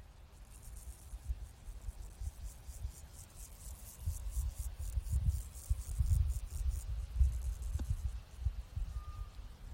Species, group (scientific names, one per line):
Pseudochorthippus parallelus
Orthoptera